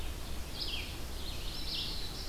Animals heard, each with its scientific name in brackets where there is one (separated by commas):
Black-throated Blue Warbler (Setophaga caerulescens), Red-eyed Vireo (Vireo olivaceus)